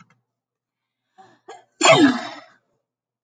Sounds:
Sneeze